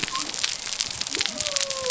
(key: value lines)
label: biophony
recorder: SoundTrap 300